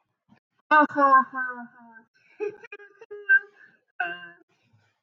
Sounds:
Laughter